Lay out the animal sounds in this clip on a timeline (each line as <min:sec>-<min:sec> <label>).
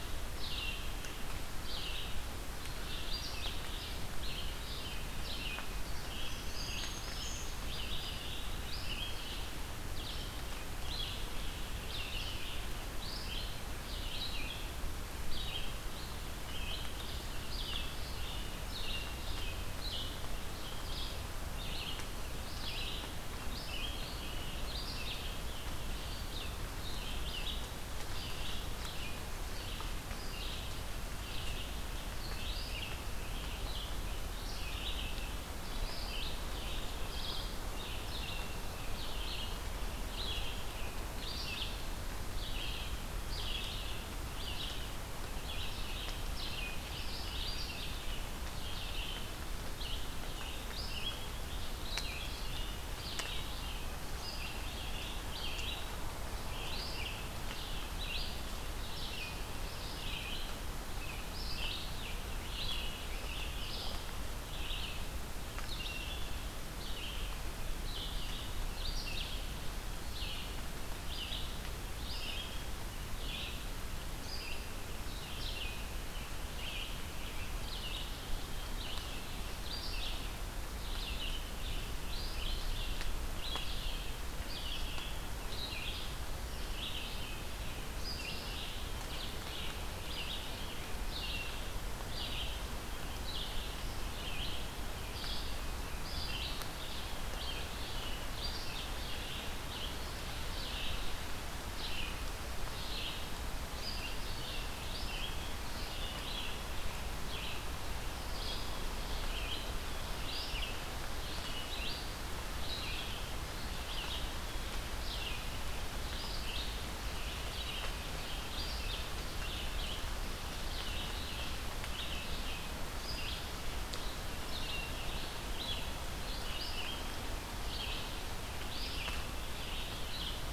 0:00.0-0:12.7 Red-eyed Vireo (Vireo olivaceus)
0:06.2-0:07.5 Black-throated Green Warbler (Setophaga virens)
0:12.9-1:11.5 Red-eyed Vireo (Vireo olivaceus)
1:11.8-2:10.4 Red-eyed Vireo (Vireo olivaceus)